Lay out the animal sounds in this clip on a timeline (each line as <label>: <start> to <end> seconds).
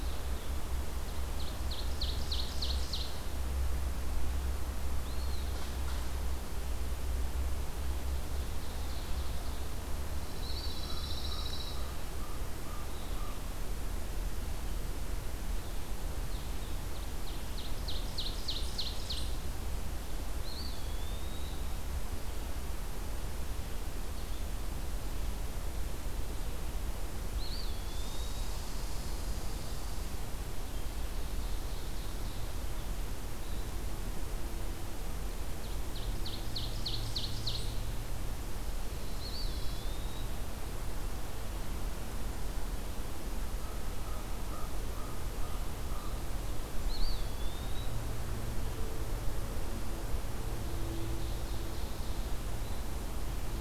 Ovenbird (Seiurus aurocapilla): 1.3 to 3.3 seconds
Eastern Wood-Pewee (Contopus virens): 5.0 to 5.6 seconds
Ovenbird (Seiurus aurocapilla): 8.0 to 9.8 seconds
Pine Warbler (Setophaga pinus): 10.0 to 11.9 seconds
American Crow (Corvus brachyrhynchos): 10.7 to 13.7 seconds
Ovenbird (Seiurus aurocapilla): 16.5 to 19.5 seconds
Eastern Wood-Pewee (Contopus virens): 20.3 to 21.6 seconds
Eastern Wood-Pewee (Contopus virens): 27.3 to 28.7 seconds
Red Squirrel (Tamiasciurus hudsonicus): 27.7 to 30.2 seconds
Ovenbird (Seiurus aurocapilla): 30.7 to 32.7 seconds
Ovenbird (Seiurus aurocapilla): 35.6 to 37.9 seconds
Eastern Wood-Pewee (Contopus virens): 39.0 to 40.4 seconds
American Crow (Corvus brachyrhynchos): 43.4 to 46.1 seconds
Eastern Wood-Pewee (Contopus virens): 46.7 to 48.0 seconds
Ovenbird (Seiurus aurocapilla): 50.5 to 52.3 seconds